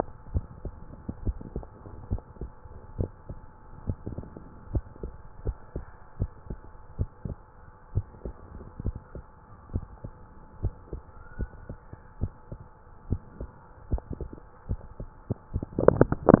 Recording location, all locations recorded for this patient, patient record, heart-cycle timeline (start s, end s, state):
tricuspid valve (TV)
aortic valve (AV)+pulmonary valve (PV)+tricuspid valve (TV)+mitral valve (MV)
#Age: Child
#Sex: Female
#Height: 136.0 cm
#Weight: 30.8 kg
#Pregnancy status: False
#Murmur: Absent
#Murmur locations: nan
#Most audible location: nan
#Systolic murmur timing: nan
#Systolic murmur shape: nan
#Systolic murmur grading: nan
#Systolic murmur pitch: nan
#Systolic murmur quality: nan
#Diastolic murmur timing: nan
#Diastolic murmur shape: nan
#Diastolic murmur grading: nan
#Diastolic murmur pitch: nan
#Diastolic murmur quality: nan
#Outcome: Normal
#Campaign: 2015 screening campaign
0.00	0.26	diastole
0.26	0.44	S1
0.44	0.64	systole
0.64	0.76	S2
0.76	1.22	diastole
1.22	1.36	S1
1.36	1.50	systole
1.50	1.68	S2
1.68	2.08	diastole
2.08	2.22	S1
2.22	2.40	systole
2.40	2.52	S2
2.52	2.95	diastole
2.95	3.12	S1
3.12	3.26	systole
3.26	3.42	S2
3.42	3.84	diastole
3.84	3.98	S1
3.98	4.16	systole
4.16	4.28	S2
4.28	4.68	diastole
4.68	4.85	S1
4.85	5.00	systole
5.00	5.10	S2
5.10	5.42	diastole
5.42	5.56	S1
5.56	5.74	systole
5.74	5.86	S2
5.86	6.18	diastole
6.18	6.31	S1
6.31	6.49	systole
6.49	6.60	S2
6.60	6.96	diastole
6.96	7.10	S1
7.10	7.24	systole
7.24	7.36	S2
7.36	7.92	diastole
7.92	8.05	S1
8.05	8.19	systole
8.19	8.36	S2
8.36	8.80	diastole
8.80	8.96	S1
8.96	9.14	systole
9.14	9.24	S2
9.24	9.71	diastole
9.71	9.85	S1
9.85	10.01	systole
10.01	10.13	S2
10.13	10.60	diastole
10.60	10.74	S1
10.74	10.92	systole
10.92	11.02	S2
11.02	11.37	diastole
11.37	11.48	S1
11.48	11.66	systole
11.66	11.81	S2
11.81	12.18	diastole
12.18	12.34	S1
12.34	12.48	systole
12.48	12.67	S2
12.67	13.06	diastole
13.06	13.23	S1
13.23	13.36	systole
13.36	13.54	S2
13.54	13.88	diastole